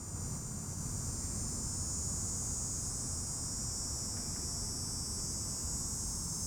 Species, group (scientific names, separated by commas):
Neotibicen canicularis, Cicadidae